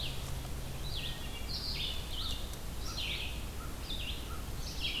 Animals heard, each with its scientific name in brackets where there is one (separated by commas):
Red-eyed Vireo (Vireo olivaceus), American Crow (Corvus brachyrhynchos), Wood Thrush (Hylocichla mustelina)